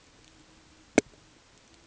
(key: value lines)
label: ambient
recorder: HydroMoth